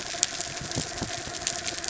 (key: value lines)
label: anthrophony, mechanical
recorder: SoundTrap 300